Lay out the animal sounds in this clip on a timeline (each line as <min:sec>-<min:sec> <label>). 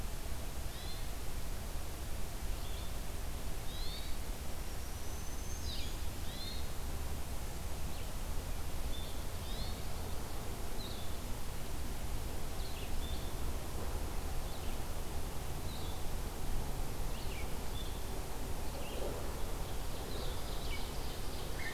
0:00.7-0:01.5 Hermit Thrush (Catharus guttatus)
0:02.5-0:21.7 Red-eyed Vireo (Vireo olivaceus)
0:03.5-0:04.3 Hermit Thrush (Catharus guttatus)
0:04.3-0:06.1 Black-throated Green Warbler (Setophaga virens)
0:06.1-0:06.9 Hermit Thrush (Catharus guttatus)
0:08.8-0:09.9 Hermit Thrush (Catharus guttatus)
0:19.4-0:21.7 Ovenbird (Seiurus aurocapilla)